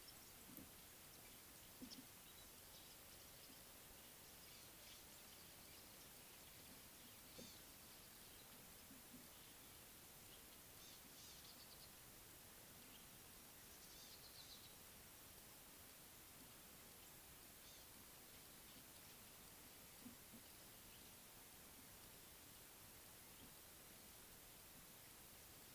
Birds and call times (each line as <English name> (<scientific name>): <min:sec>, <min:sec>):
Eastern Violet-backed Sunbird (Anthreptes orientalis): 0:07.4